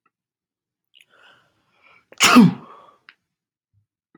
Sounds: Sneeze